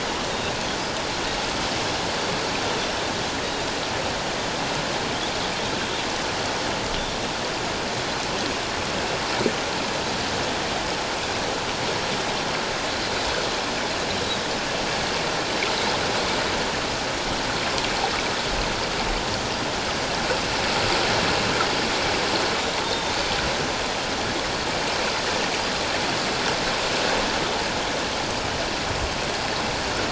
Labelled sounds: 22.8	23.1	Pacific white-sided dolphin, 3.6 to 3.7 kHz

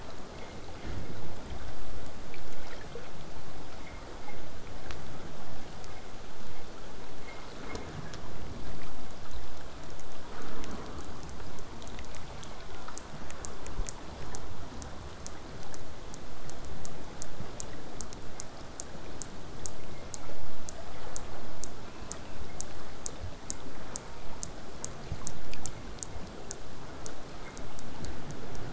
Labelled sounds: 0.2	5.2	vessel noise, 0 to 8.0 kHz

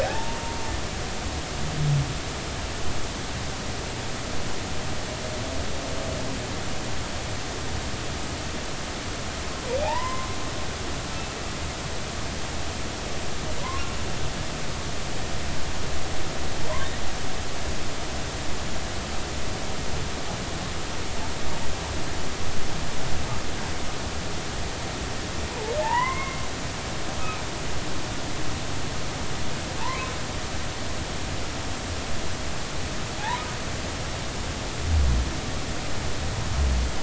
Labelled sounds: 0.0	0.4	humpback whale, 0.80 to 1.8 kHz
9.8	10.3	humpback whale, 0.80 to 2.1 kHz
13.6	13.8	humpback whale, 0.93 to 1.1 kHz
25.5	26.4	humpback whale, 0.83 to 3.0 kHz
29.8	30.1	humpback whale, 0.83 to 1.1 kHz
33.2	33.4	humpback whale, 0.80 to 1.1 kHz

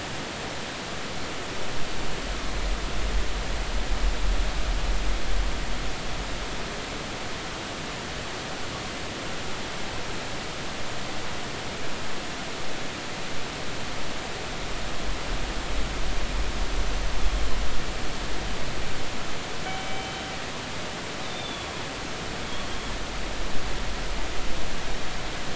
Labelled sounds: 19.7	20.2	killer whale, northern resident, G clan, call N24ii, 2.3 to 3.1 kHz
21.3	21.8	killer whale, northern resident, G clan, 3.2 to 3.7 kHz

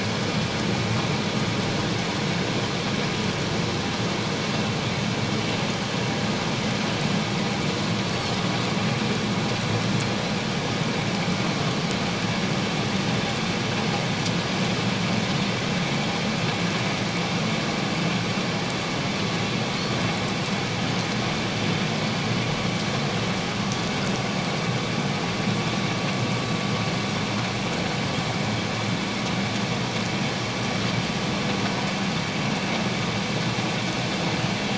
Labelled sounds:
8.1	8.4	Pacific white-sided dolphin, 5.2 to 5.6 kHz

